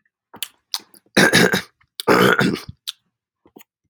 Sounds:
Throat clearing